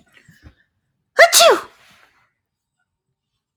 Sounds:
Sneeze